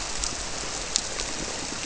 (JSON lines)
{"label": "biophony", "recorder": "SoundTrap 300"}